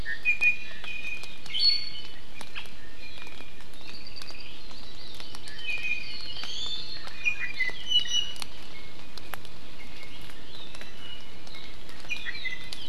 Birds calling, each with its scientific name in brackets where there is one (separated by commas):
Iiwi (Drepanis coccinea), Hawaii Amakihi (Chlorodrepanis virens), Apapane (Himatione sanguinea)